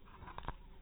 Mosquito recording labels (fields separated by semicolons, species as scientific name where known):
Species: mosquito; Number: one; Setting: cup